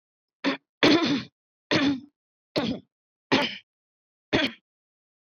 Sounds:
Throat clearing